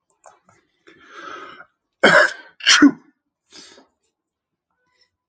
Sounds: Sneeze